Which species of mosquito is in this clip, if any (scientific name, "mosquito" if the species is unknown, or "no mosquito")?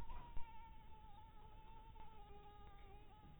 Anopheles dirus